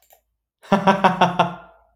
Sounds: Laughter